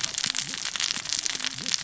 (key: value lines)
label: biophony, cascading saw
recorder: SoundTrap 600 or HydroMoth